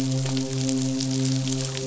{"label": "biophony, midshipman", "recorder": "SoundTrap 500"}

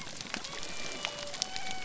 {"label": "biophony", "recorder": "SoundTrap 300"}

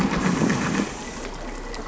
{"label": "anthrophony, boat engine", "recorder": "SoundTrap 300"}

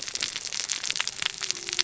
{"label": "biophony, cascading saw", "recorder": "SoundTrap 600 or HydroMoth"}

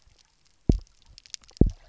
{"label": "biophony, double pulse", "recorder": "SoundTrap 300"}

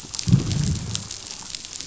{"label": "biophony, growl", "recorder": "SoundTrap 500"}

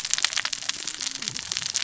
{"label": "biophony, cascading saw", "recorder": "SoundTrap 600 or HydroMoth"}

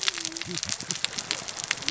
{"label": "biophony, cascading saw", "recorder": "SoundTrap 600 or HydroMoth"}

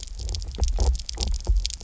{"label": "biophony", "recorder": "SoundTrap 300"}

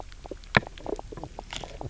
{"label": "biophony, knock croak", "recorder": "SoundTrap 300"}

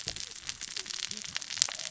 {"label": "biophony, cascading saw", "recorder": "SoundTrap 600 or HydroMoth"}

